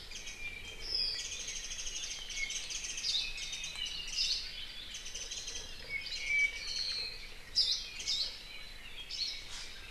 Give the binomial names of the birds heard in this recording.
Zosterops japonicus, Himatione sanguinea, Loxops coccineus, Loxops mana